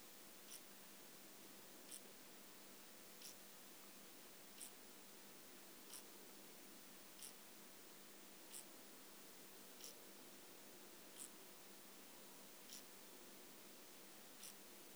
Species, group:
Chorthippus biguttulus, Orthoptera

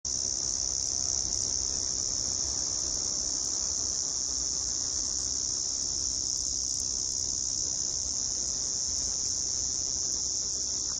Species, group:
Arunta perulata, Cicadidae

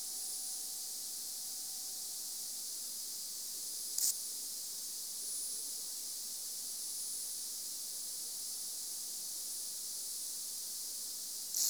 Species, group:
Pseudosubria bispinosa, Orthoptera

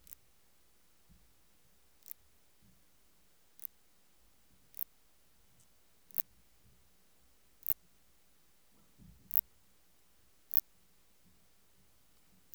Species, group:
Phaneroptera nana, Orthoptera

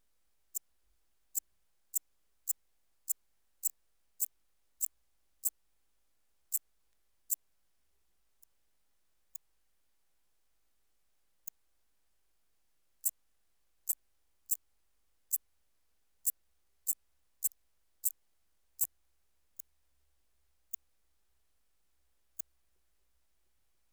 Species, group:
Eupholidoptera schmidti, Orthoptera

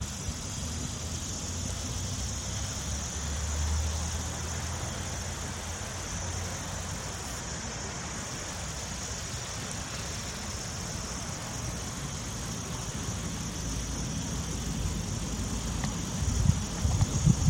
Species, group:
Tettigettalna josei, Cicadidae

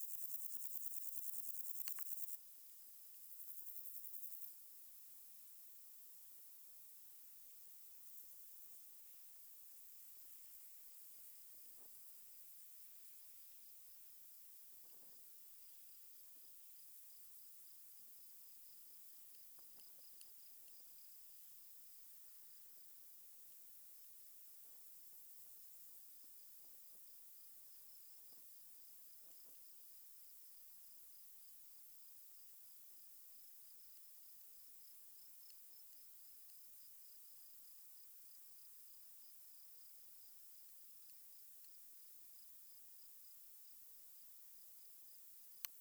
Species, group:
Chorthippus bornhalmi, Orthoptera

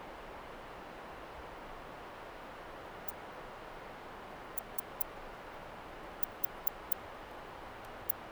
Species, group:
Barbitistes serricauda, Orthoptera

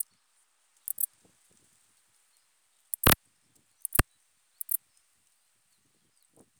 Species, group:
Eugaster guyoni, Orthoptera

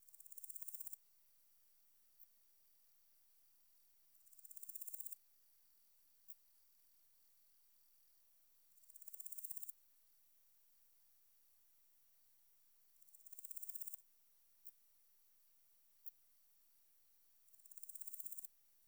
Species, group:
Chrysochraon dispar, Orthoptera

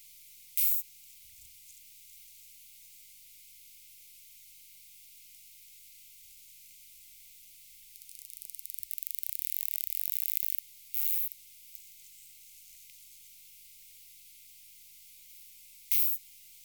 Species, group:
Isophya speciosa, Orthoptera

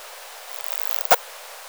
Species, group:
Poecilimon nobilis, Orthoptera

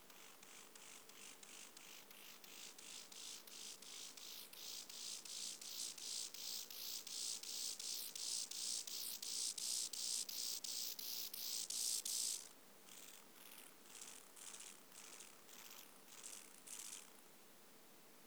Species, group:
Chorthippus mollis, Orthoptera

